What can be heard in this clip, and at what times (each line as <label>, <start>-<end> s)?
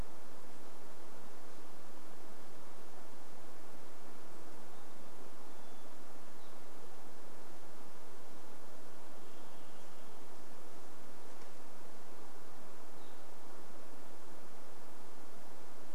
Hermit Thrush song, 4-6 s
Varied Thrush song, 4-6 s
Evening Grosbeak call, 6-8 s
Varied Thrush song, 8-10 s
Evening Grosbeak call, 12-14 s